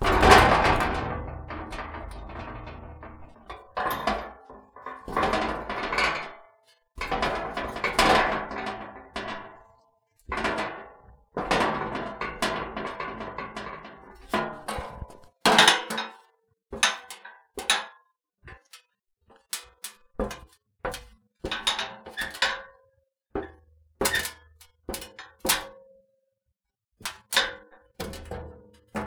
Is something impacting with a hard surface?
yes